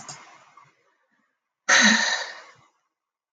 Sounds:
Sigh